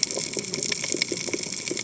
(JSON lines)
{"label": "biophony, cascading saw", "recorder": "HydroMoth"}